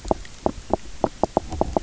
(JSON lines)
{"label": "biophony, knock croak", "recorder": "SoundTrap 300"}